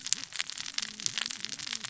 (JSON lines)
{"label": "biophony, cascading saw", "recorder": "SoundTrap 600 or HydroMoth"}